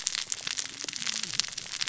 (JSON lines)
{"label": "biophony, cascading saw", "recorder": "SoundTrap 600 or HydroMoth"}